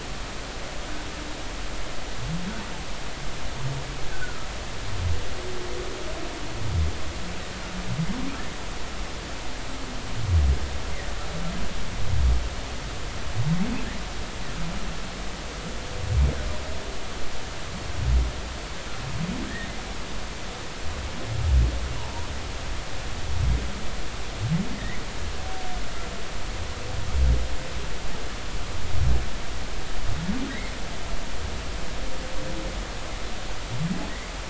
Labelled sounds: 4.1	4.5	humpback whale, 1.2 to 1.7 kHz
19.4	19.7	humpback whale, 1.5 to 2.0 kHz
24.7	25.0	humpback whale, 1.8 to 2.3 kHz
31.5	31.7	humpback whale, 1.8 to 2.2 kHz

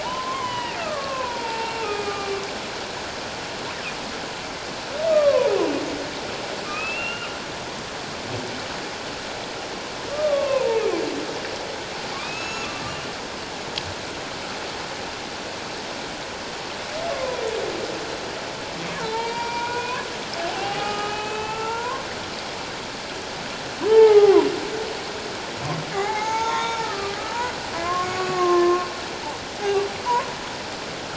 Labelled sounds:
0.0	2.4	humpback whale, 0.84 to 3.1 kHz
5.1	5.5	humpback whale, 0.91 to 1.3 kHz
6.6	7.4	humpback whale, 1.2 to 2.9 kHz
10.1	10.8	humpback whale, 0.84 to 1.2 kHz
12.2	12.8	humpback whale, 2.3 to 6.8 kHz
17.1	17.4	humpback whale, 0.94 to 1.2 kHz
19.0	22.0	humpback whale, 0.78 to 4.8 kHz
23.9	24.5	humpback whale, 0.78 to 2.2 kHz
25.9	27.2	humpback whale, 0.78 to 6.8 kHz
27.8	28.9	humpback whale, 1.0 to 2.7 kHz

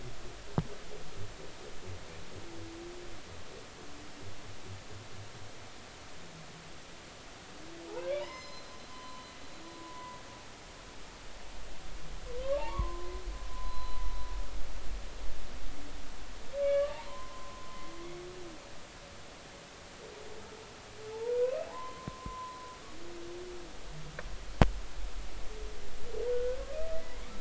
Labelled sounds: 7.9	10.2	humpback whale, 0.80 to 6.2 kHz
12.6	13.1	humpback whale, 0.80 to 1.2 kHz
13.5	14.0	humpback whale, 0.96 to 4.1 kHz
16.6	17.9	humpback whale, 0.83 to 2.9 kHz
21.1	22.6	humpback whale, 0.80 to 2.7 kHz
26.3	26.6	humpback whale, 1.4 to 1.6 kHz

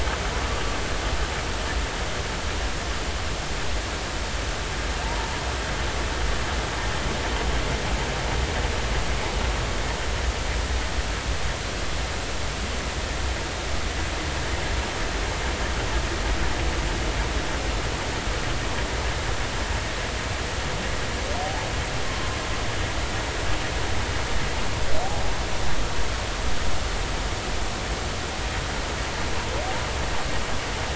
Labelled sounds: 5.0	5.5	humpback whale, 0.83 to 1.1 kHz
21.4	21.7	humpback whale, 0.80 to 0.93 kHz

